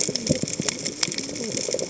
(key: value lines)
label: biophony, cascading saw
recorder: HydroMoth